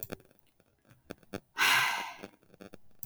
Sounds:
Sigh